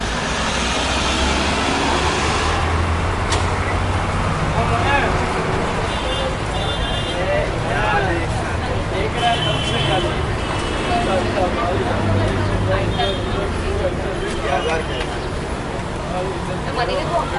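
Loud, throaty roars of motorcycles and trucks mixed with honking cars. 0:00.0 - 0:17.4

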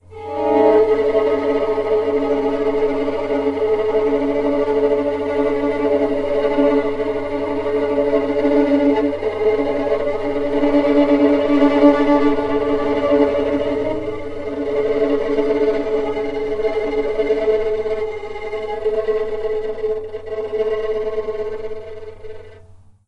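A violin plays a prolonged note indoors. 0:00.1 - 0:22.7
A violin sound gradually increases indoors. 0:00.2 - 0:00.9
The violin plays at a consistent volume indoors. 0:00.9 - 0:10.6
A violin sound gradually increases indoors. 0:10.6 - 0:12.0
The violin sound fades. 0:12.0 - 0:14.2
A violin sound gradually increases indoors. 0:14.2 - 0:15.2
The violin plays at a consistent volume indoors. 0:15.2 - 0:17.5
The violin sound fades. 0:17.5 - 0:18.4
The violin plays at a consistent volume indoors. 0:18.4 - 0:20.6
The violin sound fades. 0:20.6 - 0:22.6

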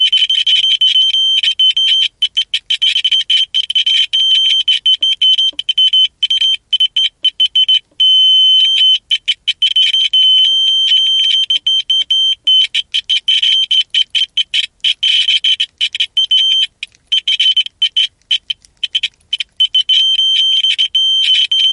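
Short electrical noises caused by friction between two contact points occur irregularly multiple times per second. 0:00.0 - 0:07.8
A loud, high-pitched beeping noise switches on and off at irregular intervals multiple times per second. 0:00.0 - 0:21.7
Short electrical noises caused by friction between two contact points occur irregularly multiple times per second. 0:08.6 - 0:21.7

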